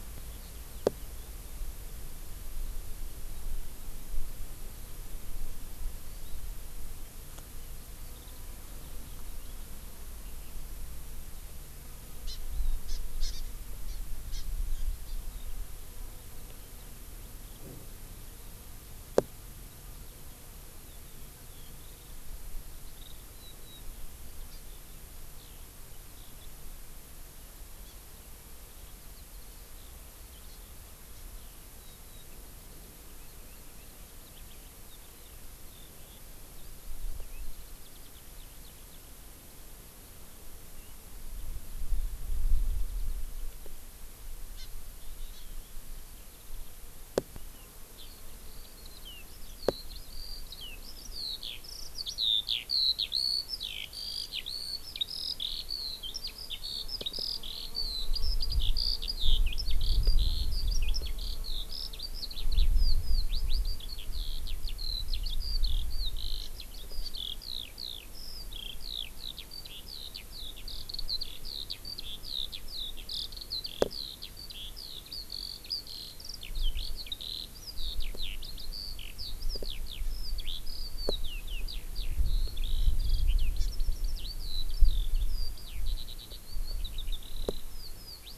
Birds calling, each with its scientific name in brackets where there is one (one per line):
Iiwi (Drepanis coccinea)
Warbling White-eye (Zosterops japonicus)
Hawaii Amakihi (Chlorodrepanis virens)
Eurasian Skylark (Alauda arvensis)